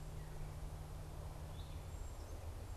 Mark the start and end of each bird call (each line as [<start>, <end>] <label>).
[1.19, 2.76] Gray Catbird (Dumetella carolinensis)
[1.39, 2.76] Cedar Waxwing (Bombycilla cedrorum)